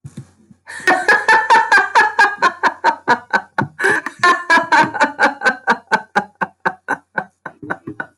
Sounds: Laughter